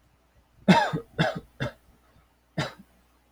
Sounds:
Cough